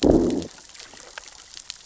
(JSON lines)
{"label": "biophony, growl", "recorder": "SoundTrap 600 or HydroMoth"}